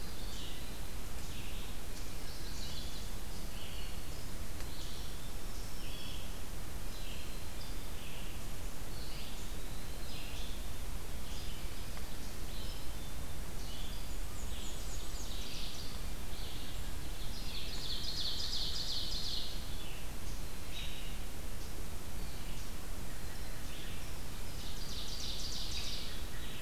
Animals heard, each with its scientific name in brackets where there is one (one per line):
Ovenbird (Seiurus aurocapilla)
Eastern Wood-Pewee (Contopus virens)
Red-eyed Vireo (Vireo olivaceus)
Black-throated Green Warbler (Setophaga virens)
Black-capped Chickadee (Poecile atricapillus)
Chestnut-sided Warbler (Setophaga pensylvanica)
Black-and-white Warbler (Mniotilta varia)